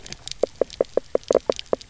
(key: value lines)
label: biophony, knock croak
recorder: SoundTrap 300